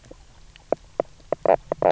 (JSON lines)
{"label": "biophony, knock croak", "recorder": "SoundTrap 300"}